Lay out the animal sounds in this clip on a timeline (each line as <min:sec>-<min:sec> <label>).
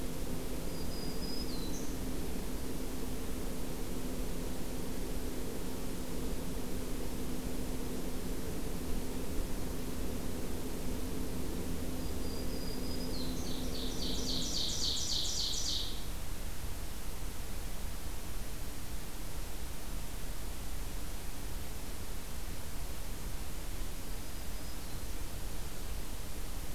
0:00.6-0:01.9 Black-throated Green Warbler (Setophaga virens)
0:12.0-0:13.6 Black-throated Green Warbler (Setophaga virens)
0:13.1-0:16.1 Ovenbird (Seiurus aurocapilla)
0:23.9-0:25.1 Black-throated Green Warbler (Setophaga virens)